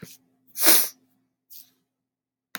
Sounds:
Sniff